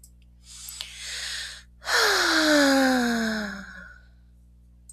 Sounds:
Sigh